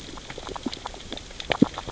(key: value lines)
label: biophony, grazing
recorder: SoundTrap 600 or HydroMoth